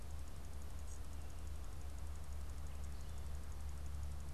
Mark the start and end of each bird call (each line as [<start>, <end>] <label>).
[0.00, 4.34] Gray Catbird (Dumetella carolinensis)